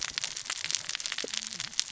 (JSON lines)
{"label": "biophony, cascading saw", "recorder": "SoundTrap 600 or HydroMoth"}